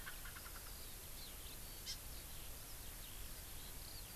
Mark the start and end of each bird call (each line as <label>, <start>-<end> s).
Erckel's Francolin (Pternistis erckelii), 0.0-0.7 s
Eurasian Skylark (Alauda arvensis), 0.0-4.2 s
Hawaii Amakihi (Chlorodrepanis virens), 1.8-2.0 s